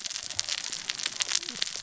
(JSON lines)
{"label": "biophony, cascading saw", "recorder": "SoundTrap 600 or HydroMoth"}